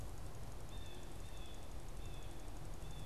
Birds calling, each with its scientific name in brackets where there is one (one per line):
Blue Jay (Cyanocitta cristata)